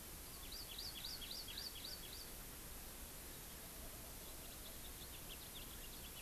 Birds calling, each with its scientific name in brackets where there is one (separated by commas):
House Finch (Haemorhous mexicanus), Hawaii Amakihi (Chlorodrepanis virens)